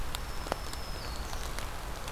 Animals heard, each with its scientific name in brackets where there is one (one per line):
Black-throated Green Warbler (Setophaga virens)